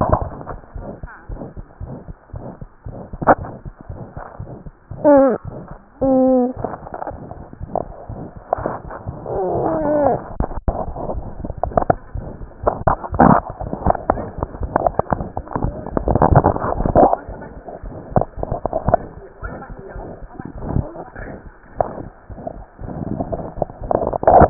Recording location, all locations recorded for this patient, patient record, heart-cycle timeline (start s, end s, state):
mitral valve (MV)
mitral valve (MV)
#Age: Child
#Sex: Male
#Height: 96.0 cm
#Weight: 15.6 kg
#Pregnancy status: False
#Murmur: Present
#Murmur locations: mitral valve (MV)
#Most audible location: mitral valve (MV)
#Systolic murmur timing: Mid-systolic
#Systolic murmur shape: Diamond
#Systolic murmur grading: I/VI
#Systolic murmur pitch: Medium
#Systolic murmur quality: Harsh
#Diastolic murmur timing: nan
#Diastolic murmur shape: nan
#Diastolic murmur grading: nan
#Diastolic murmur pitch: nan
#Diastolic murmur quality: nan
#Outcome: Abnormal
#Campaign: 2015 screening campaign
0.00	0.73	unannotated
0.73	0.84	S1
0.84	1.00	systole
1.00	1.08	S2
1.08	1.27	diastole
1.27	1.37	S1
1.37	1.55	systole
1.55	1.64	S2
1.64	1.79	diastole
1.79	1.86	S1
1.86	2.07	systole
2.07	2.14	S2
2.14	2.31	diastole
2.31	2.40	S1
2.40	2.59	systole
2.59	2.66	S2
2.66	2.84	diastole
2.84	2.93	S1
2.93	4.39	unannotated
4.39	4.45	S1
4.45	4.65	systole
4.65	4.71	S2
4.71	4.90	diastole
4.90	4.95	S1
4.95	17.26	unannotated
17.26	17.34	S1
17.34	17.55	systole
17.55	17.61	S2
17.61	17.82	diastole
17.82	17.90	S1
17.90	24.50	unannotated